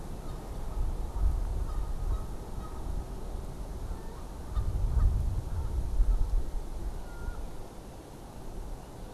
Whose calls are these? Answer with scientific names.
Branta canadensis